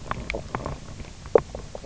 {"label": "biophony, knock croak", "recorder": "SoundTrap 300"}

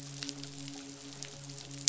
{"label": "biophony, midshipman", "recorder": "SoundTrap 500"}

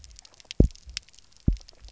{"label": "biophony, double pulse", "recorder": "SoundTrap 300"}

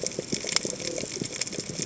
{"label": "biophony", "recorder": "HydroMoth"}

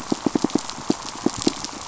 {"label": "biophony, pulse", "recorder": "SoundTrap 500"}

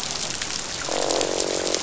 {"label": "biophony, croak", "recorder": "SoundTrap 500"}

